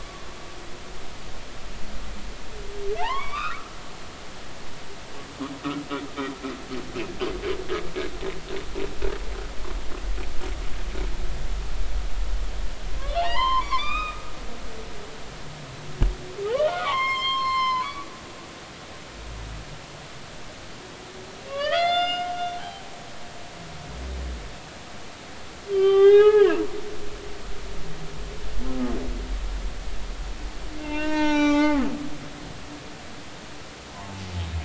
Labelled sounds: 3.0	3.7	humpback whale, 0.80 to 5.2 kHz
13.0	14.2	humpback whale, 0.80 to 5.3 kHz
16.8	18.1	humpback whale, 0.80 to 7.5 kHz
21.5	22.8	humpback whale, 1.0 to 5.1 kHz
25.7	26.6	humpback whale, 0.80 to 3.8 kHz
30.8	31.9	humpback whale, 0.80 to 6.3 kHz
33.9	34.2	humpback whale, 0.83 to 1.1 kHz

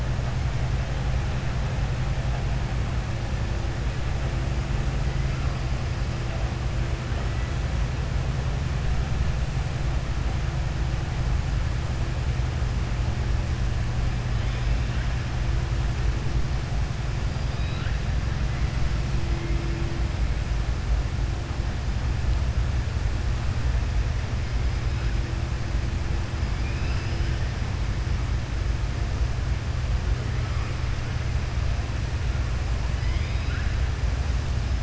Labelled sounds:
17.4	17.9	killer whale, southern resident, 1.3 to 4.9 kHz

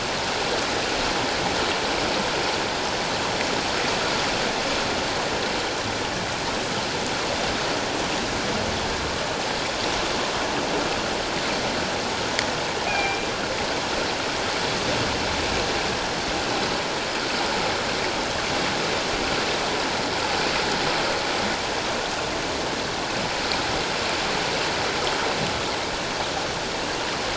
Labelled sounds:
12.8	13.3	killer whale, northern resident, G clan, call N24ii, 2.3 to 2.5 kHz

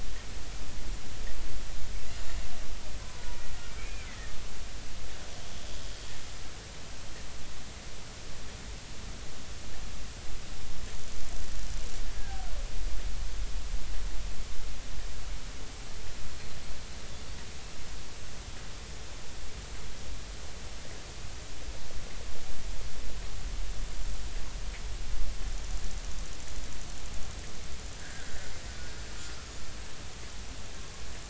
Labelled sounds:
3.0	4.3	killer whale, Bigg's (transient), 0.93 to 2.5 kHz
12.1	12.4	killer whale, Bigg's (transient), 1.5 to 1.7 kHz
28.0	28.4	killer whale, Bigg's (transient), 1.4 to 1.9 kHz

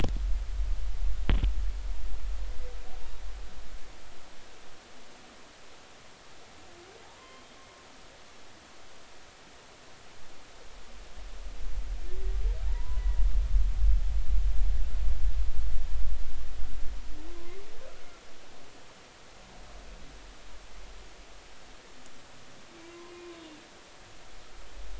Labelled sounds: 7.0	7.6	humpback whale, 0.80 to 3.3 kHz
12.7	13.2	humpback whale, 0.86 to 1.1 kHz

